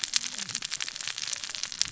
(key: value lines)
label: biophony, cascading saw
recorder: SoundTrap 600 or HydroMoth